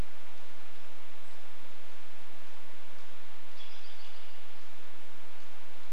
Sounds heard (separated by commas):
American Robin call, unidentified bird chip note